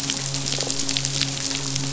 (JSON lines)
{"label": "biophony, midshipman", "recorder": "SoundTrap 500"}